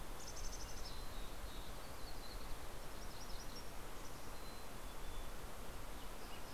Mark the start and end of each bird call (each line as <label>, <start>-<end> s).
Mountain Chickadee (Poecile gambeli), 0.0-1.6 s
Dark-eyed Junco (Junco hyemalis), 1.3-2.7 s
MacGillivray's Warbler (Geothlypis tolmiei), 2.7-4.0 s
Mountain Chickadee (Poecile gambeli), 4.2-5.8 s